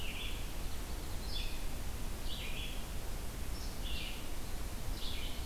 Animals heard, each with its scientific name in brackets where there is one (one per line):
Red-eyed Vireo (Vireo olivaceus)